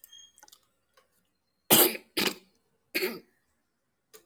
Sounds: Throat clearing